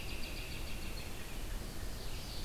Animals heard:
Red-eyed Vireo (Vireo olivaceus), Ovenbird (Seiurus aurocapilla), American Robin (Turdus migratorius)

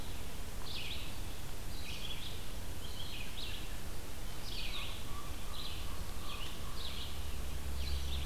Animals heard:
Red-eyed Vireo (Vireo olivaceus), American Crow (Corvus brachyrhynchos)

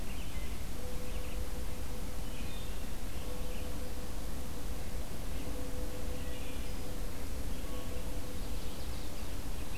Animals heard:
Ovenbird (Seiurus aurocapilla), Wood Thrush (Hylocichla mustelina)

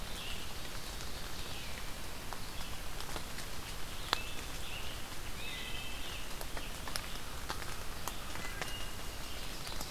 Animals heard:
Ovenbird (Seiurus aurocapilla), Wood Thrush (Hylocichla mustelina), Red-eyed Vireo (Vireo olivaceus), Scarlet Tanager (Piranga olivacea)

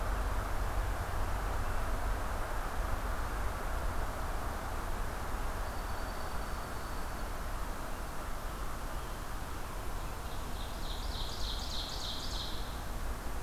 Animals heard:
Ovenbird (Seiurus aurocapilla), Dark-eyed Junco (Junco hyemalis)

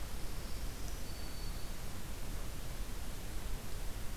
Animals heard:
Black-throated Green Warbler (Setophaga virens)

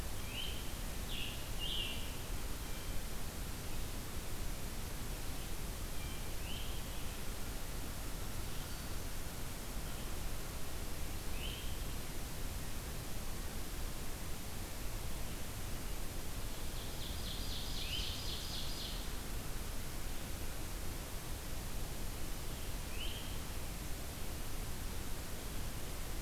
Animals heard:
Ovenbird (Seiurus aurocapilla), Great Crested Flycatcher (Myiarchus crinitus), Scarlet Tanager (Piranga olivacea)

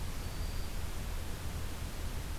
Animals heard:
Black-throated Green Warbler (Setophaga virens)

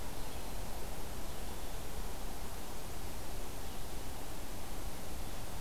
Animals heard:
Red-eyed Vireo (Vireo olivaceus)

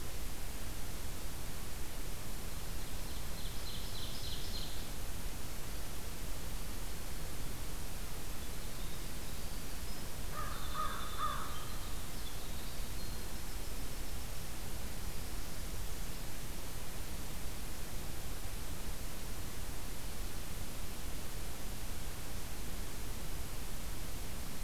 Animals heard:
Winter Wren (Troglodytes hiemalis), American Crow (Corvus brachyrhynchos), Ovenbird (Seiurus aurocapilla)

